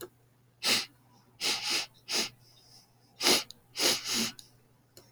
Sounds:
Sniff